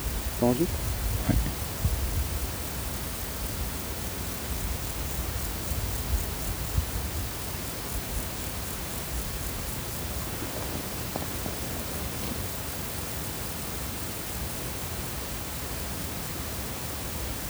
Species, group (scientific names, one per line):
Chorthippus apricarius
Orthoptera